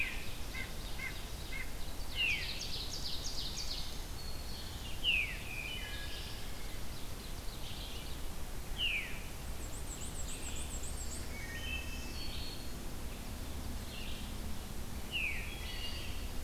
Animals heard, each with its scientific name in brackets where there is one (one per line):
Veery (Catharus fuscescens)
Black-and-white Warbler (Mniotilta varia)
Red-eyed Vireo (Vireo olivaceus)
Black-throated Green Warbler (Setophaga virens)
Ovenbird (Seiurus aurocapilla)
Wood Thrush (Hylocichla mustelina)
White-breasted Nuthatch (Sitta carolinensis)